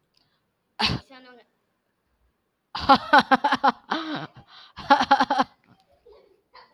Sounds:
Laughter